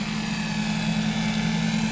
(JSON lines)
{"label": "anthrophony, boat engine", "recorder": "SoundTrap 500"}